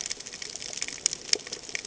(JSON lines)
{"label": "ambient", "recorder": "HydroMoth"}